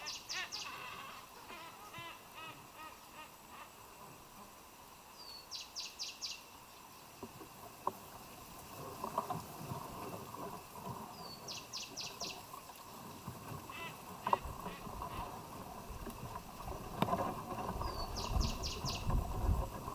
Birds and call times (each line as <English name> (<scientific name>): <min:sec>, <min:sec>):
Silvery-cheeked Hornbill (Bycanistes brevis): 0:02.3
Cinnamon Bracken-Warbler (Bradypterus cinnamomeus): 0:05.6